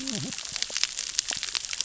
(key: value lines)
label: biophony, cascading saw
recorder: SoundTrap 600 or HydroMoth